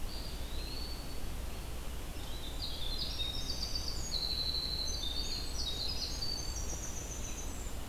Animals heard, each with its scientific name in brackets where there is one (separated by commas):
Winter Wren (Troglodytes hiemalis), Eastern Wood-Pewee (Contopus virens)